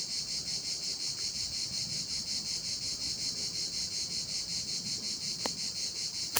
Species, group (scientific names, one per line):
Cicada orni
Cicadidae